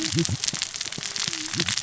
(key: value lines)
label: biophony, cascading saw
recorder: SoundTrap 600 or HydroMoth